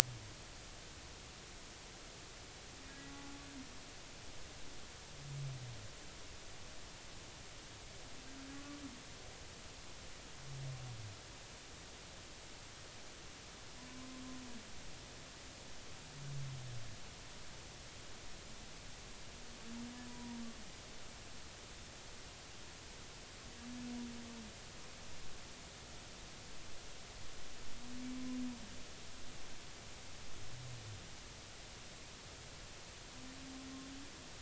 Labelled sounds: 8.5	8.8	humpback whale, 1.1 to 1.2 kHz
13.8	14.1	humpback whale, 0.96 to 1.1 kHz
20.1	20.4	humpback whale, 0.90 to 0.99 kHz

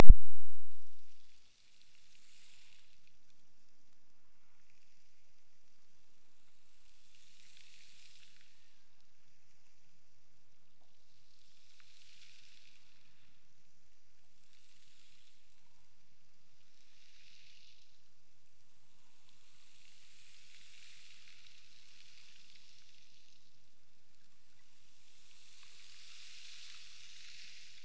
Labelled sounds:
8.4	9.5	killer whale, Bigg's (transient), Gulf of Alaska transient, 1.4 to 1.9 kHz

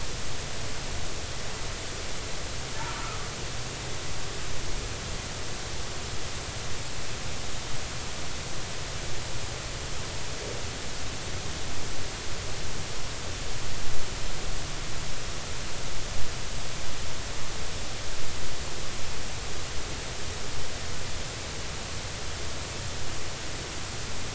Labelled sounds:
2.9	3.2	humpback whale, 1.1 to 1.4 kHz

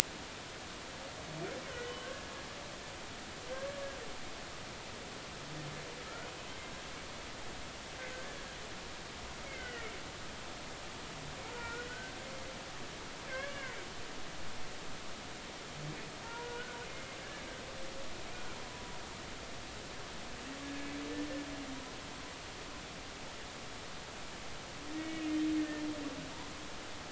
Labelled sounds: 1.8	2.3	humpback whale, 1.0 to 3.1 kHz
9.5	9.9	humpback whale, 1.2 to 3.2 kHz
11.5	12.1	humpback whale, 1.3 to 1.6 kHz
13.3	13.8	humpback whale, 0.99 to 2.3 kHz
16.2	16.8	humpback whale, 0.86 to 1.6 kHz
17.2	17.5	humpback whale, 1.6 to 1.8 kHz
20.6	20.9	humpback whale, 1.66 to 1.73 kHz
24.9	25.8	humpback whale, 1.7 to 2.9 kHz

